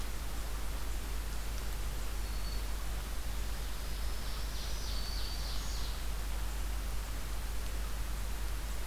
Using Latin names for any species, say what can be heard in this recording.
Setophaga virens, Seiurus aurocapilla